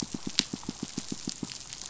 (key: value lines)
label: biophony, pulse
recorder: SoundTrap 500